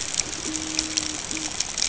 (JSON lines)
{"label": "ambient", "recorder": "HydroMoth"}